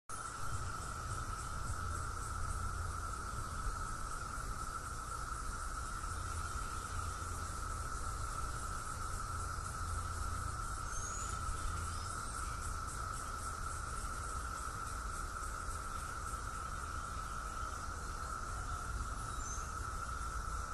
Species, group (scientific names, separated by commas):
Magicicada septendecim, Cicadidae